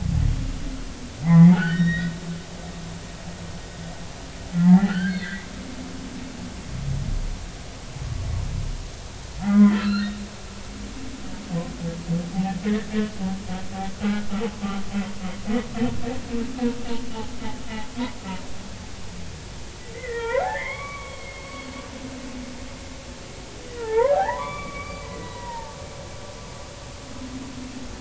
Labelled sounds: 1.2	2.1	humpback whale, 0.80 to 5.7 kHz
4.5	5.5	humpback whale, 0.80 to 3.2 kHz
9.4	10.1	humpback whale, 1.2 to 4.3 kHz
13.9	14.3	humpback whale, 1.4 to 1.5 kHz
19.9	21.6	humpback whale, 0.86 to 2.4 kHz
23.7	25.7	humpback whale, 0.80 to 3.5 kHz

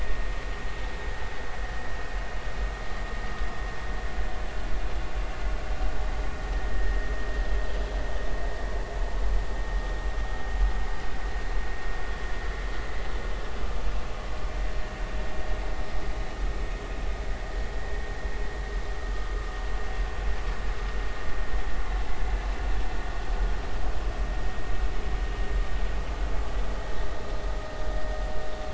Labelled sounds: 6.7	7.1	vessel noise, 1.7 to 1.9 kHz

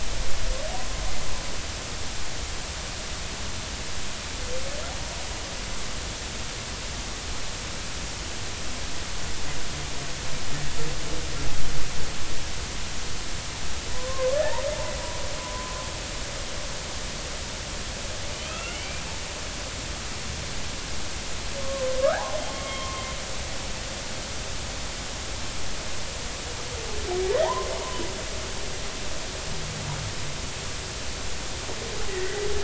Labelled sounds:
0.7	1.0	humpback whale, 0.93 to 1.1 kHz
13.9	14.6	humpback whale, 0.96 to 2.0 kHz
15.4	15.8	humpback whale, 0.96 to 1.1 kHz
18.3	19.0	humpback whale, 1.2 to 3.1 kHz
21.6	23.1	humpback whale, 0.80 to 2.2 kHz
27.4	27.7	humpback whale, 0.80 to 1.1 kHz
32.1	32.5	humpback whale, 1.8 to 2.0 kHz

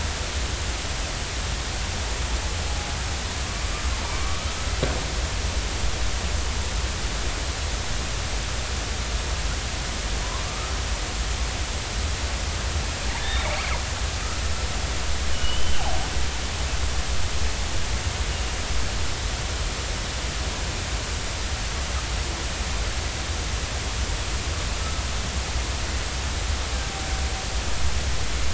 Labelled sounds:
4.0	4.4	killer whale, northern resident, 0.90 to 1.2 kHz
10.5	10.7	killer whale, northern resident, 1.1 to 1.3 kHz
13.2	13.6	killer whale, northern resident, 2.1 to 3.8 kHz
15.3	15.7	killer whale, northern resident, 2.8 to 3.1 kHz

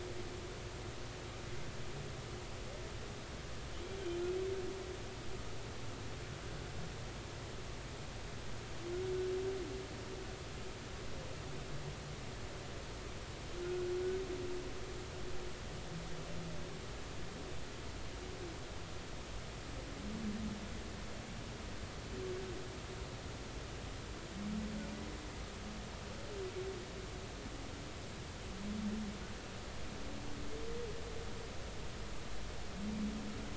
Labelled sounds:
13.6	13.9	humpback whale, 1.4 to 1.5 kHz

